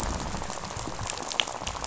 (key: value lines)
label: biophony, rattle
recorder: SoundTrap 500